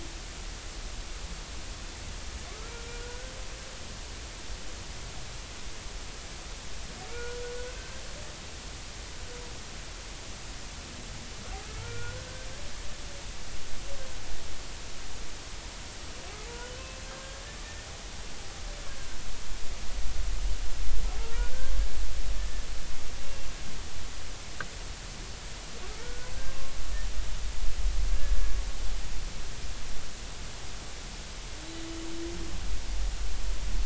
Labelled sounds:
2.7	3.4	humpback whale, 1.3 to 1.6 kHz
7.1	7.4	humpback whale, 1.3 to 1.5 kHz
7.7	8.0	humpback whale, 1.5 to 1.6 kHz
11.7	12.2	humpback whale, 1.3 to 1.5 kHz
21.2	21.5	humpback whale, 0.83 to 1.0 kHz
26.0	26.7	humpback whale, 1.0 to 1.6 kHz
28.1	28.4	humpback whale, 1.6 to 1.8 kHz

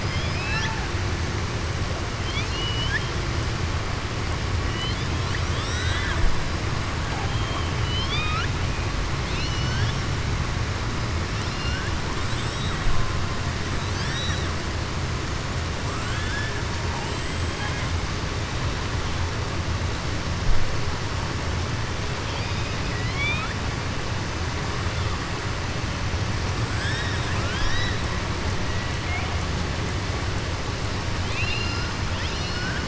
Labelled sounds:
0.0	0.8	killer whale, southern resident, 0.83 to 5.8 kHz
2.1	3.1	killer whale, southern resident, 1.6 to 5.8 kHz
4.6	5.1	killer whale, southern resident, 2.0 to 5.0 kHz
7.3	8.5	killer whale, southern resident, 1.2 to 5.3 kHz
9.2	10.0	killer whale, southern resident, 1.5 to 6.2 kHz
11.4	11.9	killer whale, southern resident, 1.4 to 5.7 kHz
13.8	14.5	killer whale, southern resident, 1.6 to 6.4 kHz
15.9	16.6	killer whale, southern resident, 1.2 to 4.0 kHz
16.9	17.9	killer whale, southern resident, 0.82 to 7.8 kHz
22.2	23.5	killer whale, southern resident, 1.2 to 5.0 kHz
26.7	28.0	killer whale, southern resident, 0.99 to 6.0 kHz
31.2	32.8	killer whale, southern resident, 1.4 to 5.8 kHz

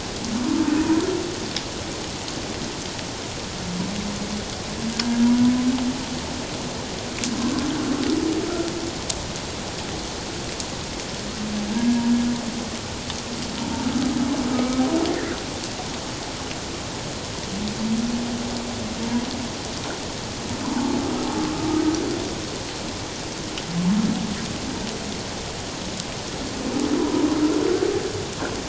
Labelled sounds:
0.8	1.0	humpback whale, 0.91 to 1.1 kHz
11.7	12.0	humpback whale, 1.6 to 1.7 kHz
14.5	14.8	humpback whale, 1.2 to 2.4 kHz
15.1	15.4	humpback whale, 1.7 to 2.2 kHz
20.7	21.0	humpback whale, 0.78 to 1.0 kHz
27.0	27.3	humpback whale, 0.88 to 1.1 kHz

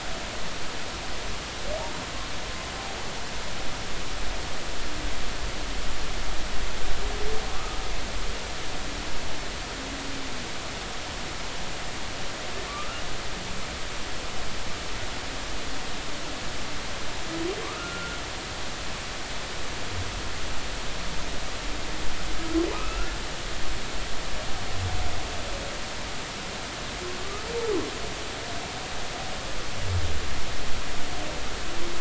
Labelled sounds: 7.5	7.8	humpback whale, 1.0 to 1.3 kHz
17.6	18.2	humpback whale, 0.99 to 1.5 kHz
22.4	23.2	humpback whale, 1.1 to 2.7 kHz

